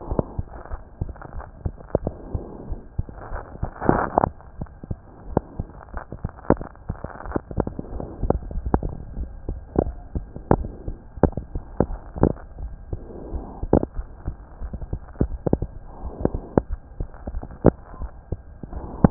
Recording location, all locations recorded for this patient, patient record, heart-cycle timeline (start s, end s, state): aortic valve (AV)
aortic valve (AV)+pulmonary valve (PV)+tricuspid valve (TV)+mitral valve (MV)
#Age: Child
#Sex: Male
#Height: 114.0 cm
#Weight: 19.3 kg
#Pregnancy status: False
#Murmur: Absent
#Murmur locations: nan
#Most audible location: nan
#Systolic murmur timing: nan
#Systolic murmur shape: nan
#Systolic murmur grading: nan
#Systolic murmur pitch: nan
#Systolic murmur quality: nan
#Diastolic murmur timing: nan
#Diastolic murmur shape: nan
#Diastolic murmur grading: nan
#Diastolic murmur pitch: nan
#Diastolic murmur quality: nan
#Outcome: Abnormal
#Campaign: 2015 screening campaign
0.00	0.05	unannotated
0.05	0.18	S1
0.18	0.34	systole
0.34	0.44	S2
0.44	0.68	diastole
0.68	0.80	S1
0.80	0.98	systole
0.98	1.14	S2
1.14	1.33	diastole
1.33	1.44	S1
1.44	1.62	systole
1.62	1.76	S2
1.76	2.00	diastole
2.00	2.14	S1
2.14	2.32	systole
2.32	2.44	S2
2.44	2.68	diastole
2.68	2.78	S1
2.78	2.96	systole
2.96	3.08	S2
3.08	3.30	diastole
3.30	3.42	S1
3.42	3.60	systole
3.60	3.70	S2
3.70	4.57	unannotated
4.57	4.68	S1
4.68	4.88	systole
4.88	4.98	S2
4.98	5.24	diastole
5.24	5.36	S1
5.36	5.56	systole
5.56	5.66	S2
5.66	5.92	diastole
5.92	6.02	S1
6.02	6.20	systole
6.20	6.30	S2
6.30	6.49	diastole
6.49	6.63	S1
6.63	6.88	systole
6.88	6.97	S2
6.97	7.24	diastole
7.24	7.34	S1
7.34	7.56	systole
7.56	7.66	S2
7.66	7.90	diastole
7.90	8.04	S1
8.04	19.10	unannotated